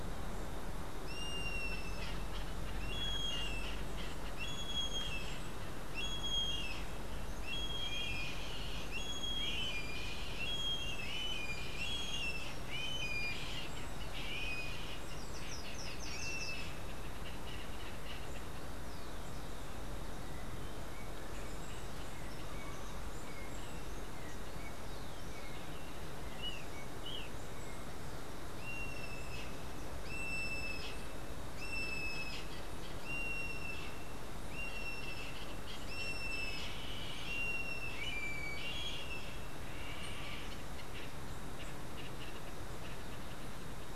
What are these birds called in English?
Yellow-headed Caracara, Slate-throated Redstart, Golden-faced Tyrannulet